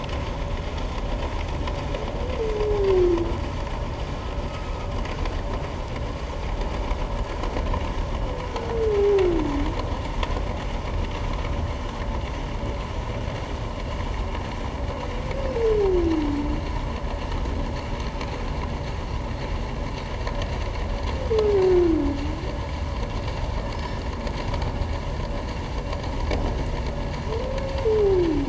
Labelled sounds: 23.6	24.0	humpback whale, 5.1 to 5.4 kHz

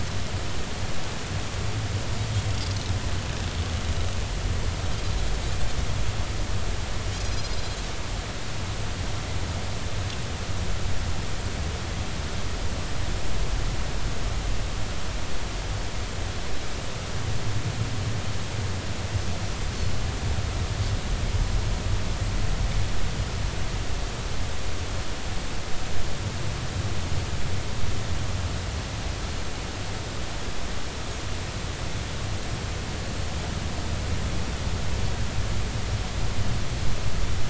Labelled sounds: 7.2	7.6	Pacific white-sided dolphin, 4.0 to 5.2 kHz

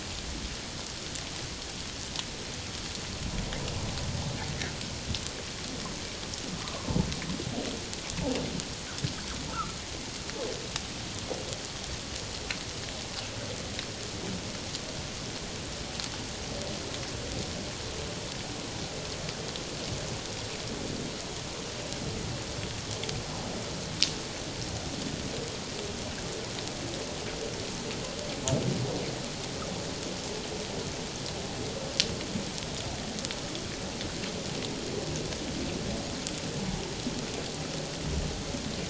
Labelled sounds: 6.6	7.0	humpback whale, 0.97 to 1.3 kHz

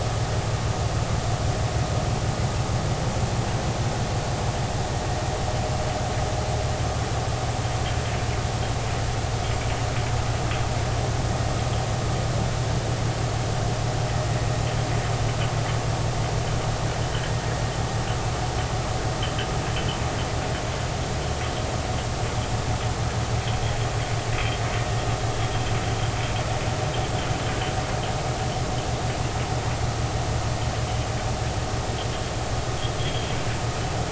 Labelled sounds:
33.0	33.3	metallic sound likely from a chain, 3.0 to 3.5 kHz

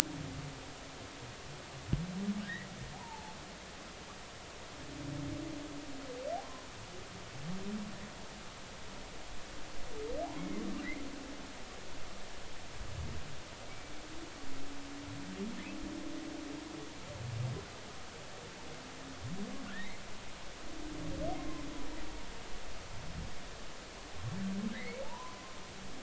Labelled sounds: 2.4	3.4	humpback whale, 0.80 to 2.0 kHz
6.4	6.7	humpback whale, 0.80 to 1.1 kHz
10.4	10.6	humpback whale, 2.0 to 2.3 kHz
13.7	13.9	humpback whale, 2.2 to 2.4 kHz
19.7	20.0	humpback whale, 1.6 to 2.3 kHz
21.4	21.6	humpback whale, 0.99 to 1.1 kHz
24.7	25.6	humpback whale, 0.83 to 2.3 kHz

